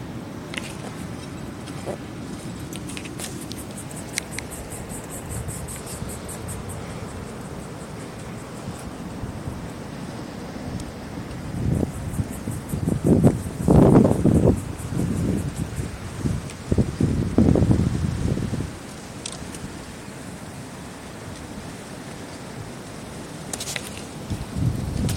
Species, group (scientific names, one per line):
Yoyetta celis
Cicadidae